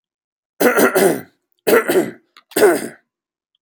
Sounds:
Throat clearing